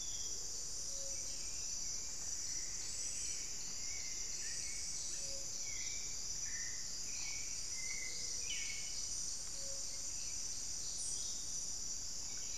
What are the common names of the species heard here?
Paradise Tanager, Plumbeous Antbird, Buff-throated Saltator, unidentified bird